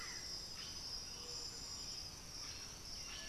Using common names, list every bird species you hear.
Blue-headed Parrot, Buff-throated Saltator, Striped Cuckoo